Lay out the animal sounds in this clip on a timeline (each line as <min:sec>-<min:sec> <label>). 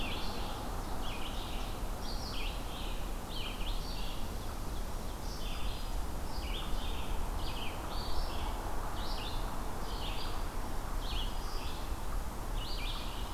0:00.0-0:13.3 Red-eyed Vireo (Vireo olivaceus)
0:00.2-0:01.9 Ovenbird (Seiurus aurocapilla)
0:03.3-0:05.5 Ovenbird (Seiurus aurocapilla)
0:05.2-0:06.2 Black-throated Green Warbler (Setophaga virens)